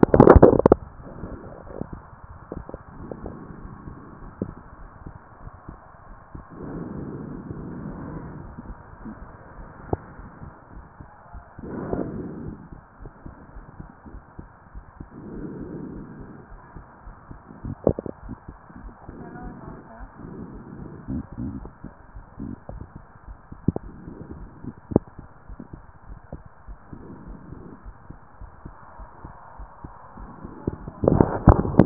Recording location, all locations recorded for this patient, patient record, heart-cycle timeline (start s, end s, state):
pulmonary valve (PV)
pulmonary valve (PV)+tricuspid valve (TV)
#Age: Child
#Sex: Male
#Height: 165.0 cm
#Weight: 110.8 kg
#Pregnancy status: False
#Murmur: Absent
#Murmur locations: nan
#Most audible location: nan
#Systolic murmur timing: nan
#Systolic murmur shape: nan
#Systolic murmur grading: nan
#Systolic murmur pitch: nan
#Systolic murmur quality: nan
#Diastolic murmur timing: nan
#Diastolic murmur shape: nan
#Diastolic murmur grading: nan
#Diastolic murmur pitch: nan
#Diastolic murmur quality: nan
#Outcome: Abnormal
#Campaign: 2014 screening campaign
0.00	25.50	unannotated
25.50	25.58	S1
25.58	25.74	systole
25.74	25.84	S2
25.84	26.08	diastole
26.08	26.18	S1
26.18	26.34	systole
26.34	26.42	S2
26.42	26.68	diastole
26.68	26.78	S1
26.78	26.92	systole
26.92	27.02	S2
27.02	27.28	diastole
27.28	27.38	S1
27.38	27.54	systole
27.54	27.64	S2
27.64	27.86	diastole
27.86	27.94	S1
27.94	28.10	systole
28.10	28.20	S2
28.20	28.40	diastole
28.40	28.50	S1
28.50	28.66	systole
28.66	28.74	S2
28.74	28.98	diastole
28.98	29.08	S1
29.08	29.24	systole
29.24	29.34	S2
29.34	29.58	diastole
29.58	29.68	S1
29.68	29.84	systole
29.84	29.94	S2
29.94	30.18	diastole
30.18	31.86	unannotated